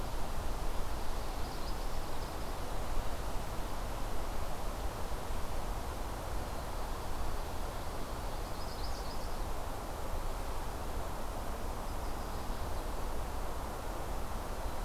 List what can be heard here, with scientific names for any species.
Setophaga pensylvanica